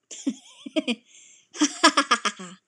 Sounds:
Laughter